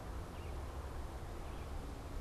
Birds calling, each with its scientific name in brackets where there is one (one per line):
Red-eyed Vireo (Vireo olivaceus)